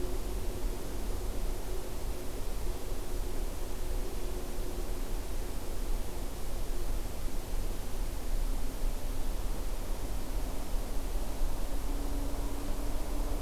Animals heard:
forest ambience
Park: Acadia National Park